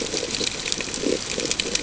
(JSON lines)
{"label": "ambient", "recorder": "HydroMoth"}